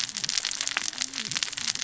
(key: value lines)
label: biophony, cascading saw
recorder: SoundTrap 600 or HydroMoth